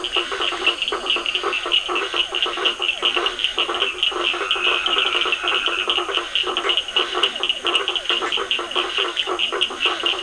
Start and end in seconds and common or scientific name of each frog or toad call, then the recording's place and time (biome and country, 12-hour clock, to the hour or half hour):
0.0	10.2	blacksmith tree frog
0.0	10.2	Physalaemus cuvieri
0.0	10.2	Scinax perereca
0.0	10.2	Cochran's lime tree frog
4.1	6.1	Dendropsophus nahdereri
Atlantic Forest, Brazil, 8:30pm